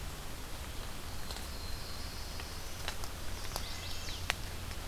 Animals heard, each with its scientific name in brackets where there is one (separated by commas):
Wood Thrush (Hylocichla mustelina), Black-throated Blue Warbler (Setophaga caerulescens), Chestnut-sided Warbler (Setophaga pensylvanica)